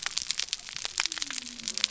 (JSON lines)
{"label": "biophony", "recorder": "SoundTrap 300"}